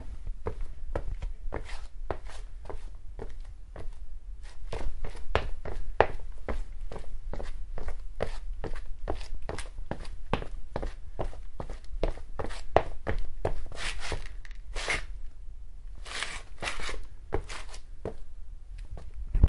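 0.0s Footsteps on a hard surface repeating. 4.7s
4.7s Footsteps of a person running repeatedly on a hard surface. 6.7s
6.7s Footsteps on a hard surface repeating. 13.8s
13.7s A person is stepping repeatedly on a sandy surface. 19.5s

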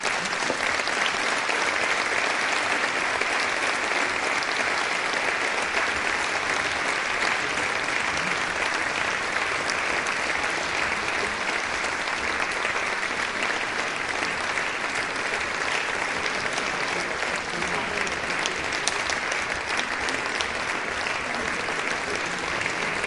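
0.0s Constant, rhythmic clapping from a large crowd with an echo. 23.1s
16.2s People talking faintly in a large room. 19.1s
21.1s Multiple people are talking indistinctly. 23.1s

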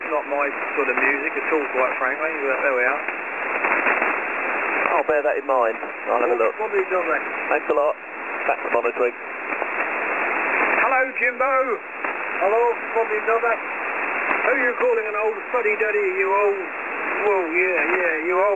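0.0s Consistent static noise from a radio. 18.5s
0.0s Two men are talking with varying volume and speech patterns. 18.6s

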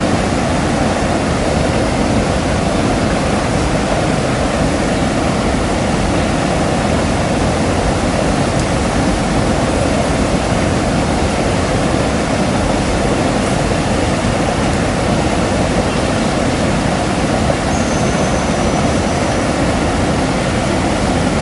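0.1s The wind blows loudly and continuously through the hills, creating a rushing sound. 21.4s

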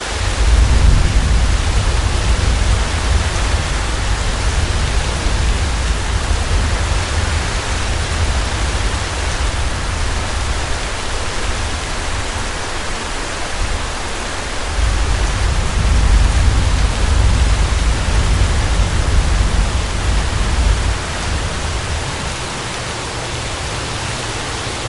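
0.0s Thunder. 10.8s
0.0s Heavy and strong rain falling. 24.9s
14.7s Intense thunderstorm sounds. 23.6s

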